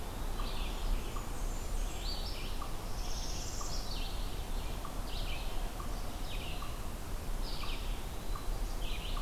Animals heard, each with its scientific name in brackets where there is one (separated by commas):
Blackburnian Warbler (Setophaga fusca), Eastern Wood-Pewee (Contopus virens), Red-eyed Vireo (Vireo olivaceus), Northern Parula (Setophaga americana), unknown mammal